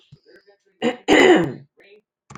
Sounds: Throat clearing